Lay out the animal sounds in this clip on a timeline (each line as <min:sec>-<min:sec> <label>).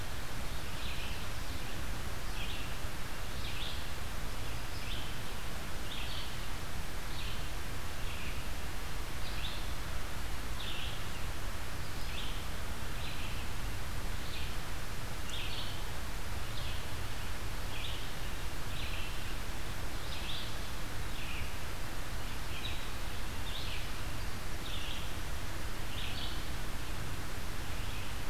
0:00.6-0:28.3 Red-eyed Vireo (Vireo olivaceus)